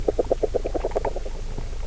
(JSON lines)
{"label": "biophony, grazing", "recorder": "SoundTrap 300"}